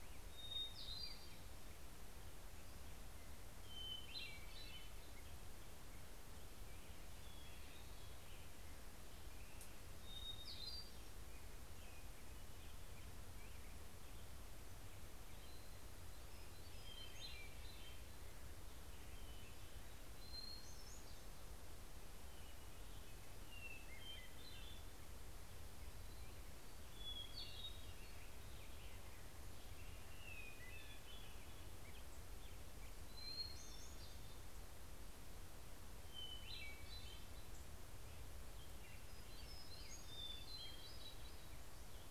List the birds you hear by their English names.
Black-headed Grosbeak, Hermit Thrush